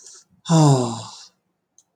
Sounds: Sigh